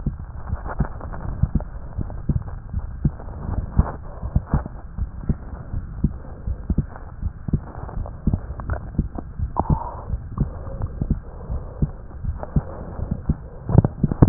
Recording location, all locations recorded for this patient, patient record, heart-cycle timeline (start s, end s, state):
aortic valve (AV)
aortic valve (AV)+pulmonary valve (PV)+tricuspid valve (TV)+mitral valve (MV)
#Age: Child
#Sex: Female
#Height: 139.0 cm
#Weight: 28.3 kg
#Pregnancy status: False
#Murmur: Absent
#Murmur locations: nan
#Most audible location: nan
#Systolic murmur timing: nan
#Systolic murmur shape: nan
#Systolic murmur grading: nan
#Systolic murmur pitch: nan
#Systolic murmur quality: nan
#Diastolic murmur timing: nan
#Diastolic murmur shape: nan
#Diastolic murmur grading: nan
#Diastolic murmur pitch: nan
#Diastolic murmur quality: nan
#Outcome: Abnormal
#Campaign: 2015 screening campaign
0.00	2.68	unannotated
2.68	2.88	S1
2.88	3.01	systole
3.01	3.16	S2
3.16	3.52	diastole
3.52	3.66	S1
3.66	3.75	systole
3.75	3.94	S2
3.94	4.19	diastole
4.19	4.34	S1
4.34	4.50	systole
4.50	4.66	S2
4.66	4.94	diastole
4.94	5.10	S1
5.10	5.25	systole
5.25	5.40	S2
5.40	5.68	diastole
5.68	5.84	S1
5.84	6.00	systole
6.00	6.12	S2
6.12	6.43	diastole
6.43	6.58	S1
6.58	6.74	systole
6.74	6.88	S2
6.88	7.19	diastole
7.19	7.32	S1
7.32	7.48	systole
7.48	7.62	S2
7.62	7.92	diastole
7.92	8.08	S1
8.08	8.23	systole
8.23	8.40	S2
8.40	8.68	diastole
8.68	8.82	S1
8.82	8.94	systole
8.94	9.10	S2
9.10	9.35	diastole
9.35	9.52	S1
9.52	9.67	systole
9.67	9.80	S2
9.80	10.07	diastole
10.07	10.22	S1
10.22	10.36	systole
10.36	10.52	S2
10.52	10.78	diastole
10.78	10.92	S1
10.92	11.08	systole
11.08	11.22	S2
11.22	11.46	diastole
11.46	11.64	S1
11.64	11.80	systole
11.80	11.94	S2
11.94	12.21	diastole
12.21	12.38	S1
12.38	12.52	systole
12.52	12.66	S2
12.66	12.95	diastole
12.95	13.10	S1
13.10	13.24	systole
13.24	13.40	S2
13.40	14.29	unannotated